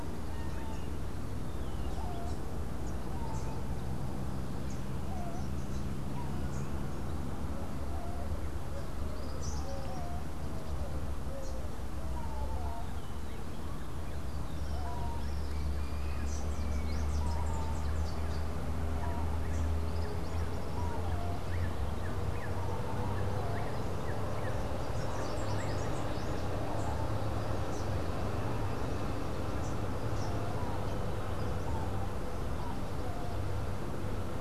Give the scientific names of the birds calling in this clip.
Basileuterus rufifrons, Campylorhynchus rufinucha